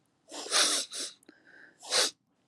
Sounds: Sniff